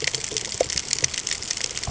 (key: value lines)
label: ambient
recorder: HydroMoth